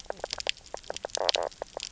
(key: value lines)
label: biophony, knock croak
recorder: SoundTrap 300